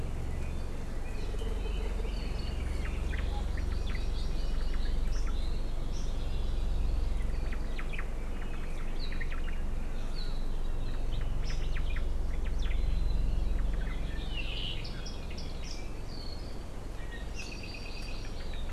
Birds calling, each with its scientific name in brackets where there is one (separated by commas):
Hawaii Amakihi (Chlorodrepanis virens), Hawaii Creeper (Loxops mana), Iiwi (Drepanis coccinea), Red-billed Leiothrix (Leiothrix lutea), Apapane (Himatione sanguinea), Omao (Myadestes obscurus)